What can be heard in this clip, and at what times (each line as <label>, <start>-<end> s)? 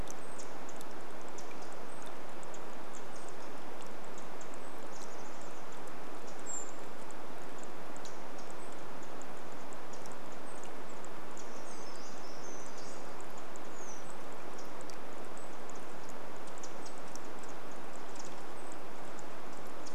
Brown Creeper call, 0-4 s
Pacific Wren call, 0-20 s
Chestnut-backed Chickadee call, 4-6 s
Brown Creeper call, 6-20 s
Brown Creeper song, 10-14 s